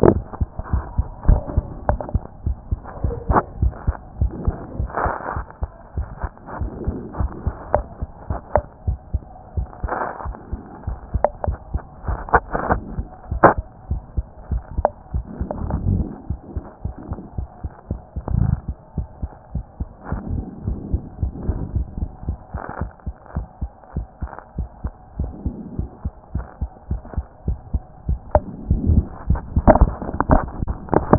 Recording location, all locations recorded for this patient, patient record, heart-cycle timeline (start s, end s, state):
mitral valve (MV)
pulmonary valve (PV)+tricuspid valve (TV)+mitral valve (MV)
#Age: Child
#Sex: Female
#Height: 110.0 cm
#Weight: 16.1 kg
#Pregnancy status: False
#Murmur: Absent
#Murmur locations: nan
#Most audible location: nan
#Systolic murmur timing: nan
#Systolic murmur shape: nan
#Systolic murmur grading: nan
#Systolic murmur pitch: nan
#Systolic murmur quality: nan
#Diastolic murmur timing: nan
#Diastolic murmur shape: nan
#Diastolic murmur grading: nan
#Diastolic murmur pitch: nan
#Diastolic murmur quality: nan
#Outcome: Abnormal
#Campaign: 2014 screening campaign
0.00	18.96	unannotated
18.96	19.08	S1
19.08	19.22	systole
19.22	19.30	S2
19.30	19.54	diastole
19.54	19.64	S1
19.64	19.80	systole
19.80	19.88	S2
19.88	20.10	diastole
20.10	20.22	S1
20.22	20.32	systole
20.32	20.42	S2
20.42	20.66	diastole
20.66	20.78	S1
20.78	20.92	systole
20.92	21.02	S2
21.02	21.22	diastole
21.22	21.32	S1
21.32	21.46	systole
21.46	21.58	S2
21.58	21.74	diastole
21.74	21.86	S1
21.86	22.00	systole
22.00	22.10	S2
22.10	22.26	diastole
22.26	22.38	S1
22.38	22.54	systole
22.54	22.62	S2
22.62	22.80	diastole
22.80	22.90	S1
22.90	23.06	systole
23.06	23.14	S2
23.14	23.36	diastole
23.36	23.46	S1
23.46	23.62	systole
23.62	23.70	S2
23.70	23.96	diastole
23.96	24.06	S1
24.06	24.22	systole
24.22	24.30	S2
24.30	24.58	diastole
24.58	24.68	S1
24.68	24.84	systole
24.84	24.92	S2
24.92	25.18	diastole
25.18	25.32	S1
25.32	25.44	systole
25.44	25.54	S2
25.54	25.78	diastole
25.78	25.90	S1
25.90	26.04	systole
26.04	26.12	S2
26.12	26.34	diastole
26.34	26.46	S1
26.46	26.60	systole
26.60	26.70	S2
26.70	26.90	diastole
26.90	27.02	S1
27.02	27.16	systole
27.16	27.26	S2
27.26	27.46	diastole
27.46	27.58	S1
27.58	27.72	systole
27.72	27.82	S2
27.82	28.08	diastole
28.08	31.18	unannotated